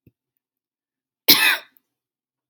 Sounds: Cough